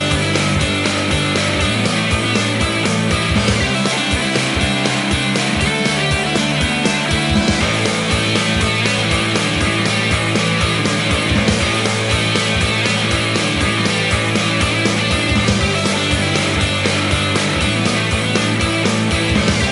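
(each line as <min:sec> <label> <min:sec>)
0:00.0 A guitar is playing a song. 0:19.7
0:00.0 Drums play a rhythmic pattern repeatedly. 0:19.7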